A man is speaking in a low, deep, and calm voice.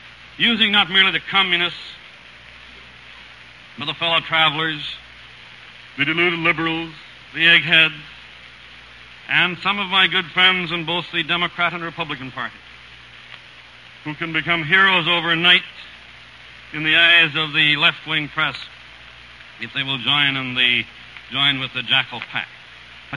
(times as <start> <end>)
0.4 2.5, 3.7 5.4, 6.0 8.1, 9.2 12.7, 14.0 15.9, 16.7 18.9, 19.5 23.2